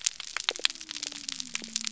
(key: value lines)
label: biophony
recorder: SoundTrap 300